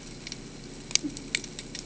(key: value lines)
label: ambient
recorder: HydroMoth